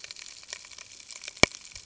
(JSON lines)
{"label": "ambient", "recorder": "HydroMoth"}